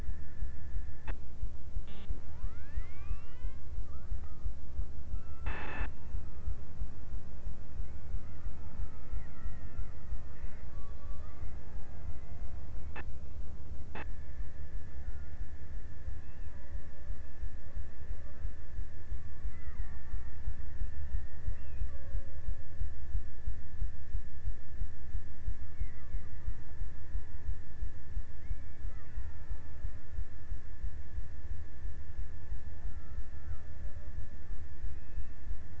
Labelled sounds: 8.1	12.3	killer whale, Bigg's (transient), 0.52 to 5.1 kHz
19.3	23.5	killer whale, Bigg's (transient), 0.31 to 2.6 kHz
28.6	31.0	killer whale, Bigg's (transient), 0.52 to 2.8 kHz
32.6	34.5	killer whale, Bigg's (transient), 0.42 to 1.6 kHz

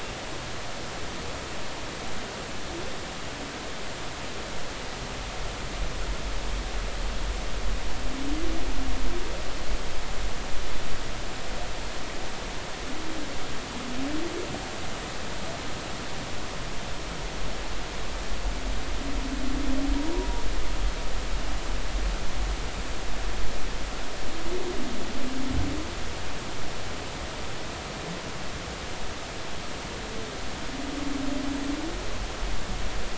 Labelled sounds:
19.9	20.3	humpback whale, 0.93 to 0.99 kHz

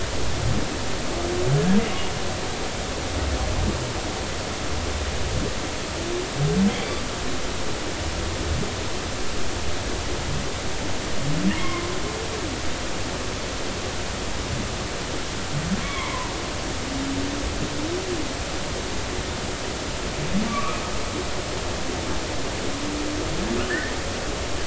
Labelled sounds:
6.7	7.0	humpback whale, 2.2 to 2.4 kHz
11.6	11.9	humpback whale, 0.99 to 2.2 kHz
15.8	16.3	humpback whale, 0.90 to 2.3 kHz
20.5	20.8	humpback whale, 1.1 to 1.3 kHz
23.6	23.9	humpback whale, 1.2 to 2.0 kHz

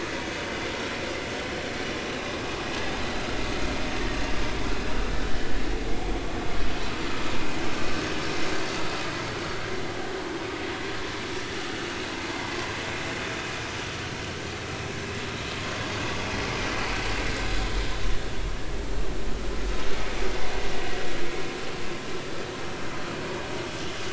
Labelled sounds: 0.1	0.4	vessel noise, 2.2 to 2.4 kHz
5.2	5.5	vessel noise, 2.9 to 3.1 kHz

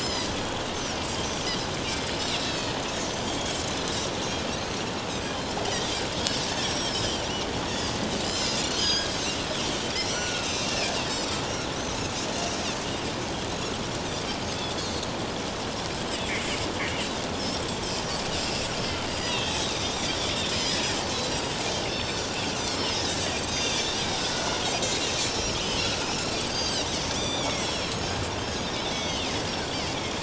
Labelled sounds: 0.0	0.3	Pacific white-sided dolphin, 4.8 to 6.4 kHz
2.3	2.8	Pacific white-sided dolphin, 2.4 to 4.7 kHz
3.1	3.6	Pacific white-sided dolphin, 3.1 to 6.2 kHz
5.1	5.4	Pacific white-sided dolphin, 4.8 to 6.5 kHz
6.5	7.5	Pacific white-sided dolphin, 4.9 to 7.9 kHz
8.2	9.1	Pacific white-sided dolphin, 1.6 to 7.4 kHz
10.0	11.2	Pacific white-sided dolphin, 1.2 to 6.3 kHz
12.1	12.4	Pacific white-sided dolphin, 6.7 to 7.1 kHz
17.3	18.7	Pacific white-sided dolphin, 2.5 to 5.7 kHz
19.2	20.8	Pacific white-sided dolphin, 2.4 to 7.9 kHz
21.7	23.9	Pacific white-sided dolphin, 2.5 to 8.0 kHz
24.3	24.6	Pacific white-sided dolphin, 1.4 to 1.5 kHz
25.1	29.3	Pacific white-sided dolphin, 1.9 to 8.0 kHz

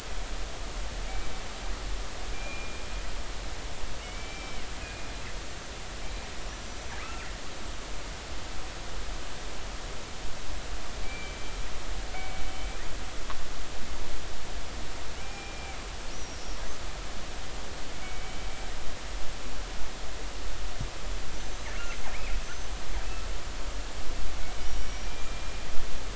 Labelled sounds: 2.3	2.8	killer whale, northern resident, G clan, call N24ii, 2.3 to 2.5 kHz
4.0	5.1	killer whale, northern resident, G clan, call N24ii, 2.1 to 2.6 kHz
6.0	6.3	killer whale, northern resident, G clan, 2.3 to 2.4 kHz
6.5	6.8	killer whale, northern resident, G clan, call N23i, 5.7 to 6.0 kHz
11.0	11.4	killer whale, northern resident, G clan, 2.3 to 2.4 kHz
12.1	12.4	killer whale, northern resident, G clan, 2.2 to 2.3 kHz
15.2	15.8	killer whale, northern resident, G clan, 0.80 to 2.5 kHz
16.1	16.6	killer whale, northern resident, G clan, 5.5 to 6.1 kHz
18.0	18.5	killer whale, northern resident, G clan, 2.2 to 2.4 kHz
21.4	21.7	killer whale, northern resident, G clan, 6.0 to 6.2 kHz
22.4	22.7	killer whale, northern resident, G clan, 6.0 to 6.3 kHz
24.6	25.6	killer whale, northern resident, G clan, 2.3 to 5.7 kHz

